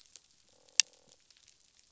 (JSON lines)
{"label": "biophony, croak", "recorder": "SoundTrap 500"}